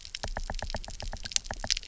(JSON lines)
{"label": "biophony, knock", "recorder": "SoundTrap 300"}